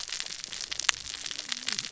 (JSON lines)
{"label": "biophony, cascading saw", "recorder": "SoundTrap 600 or HydroMoth"}